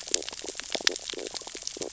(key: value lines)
label: biophony, stridulation
recorder: SoundTrap 600 or HydroMoth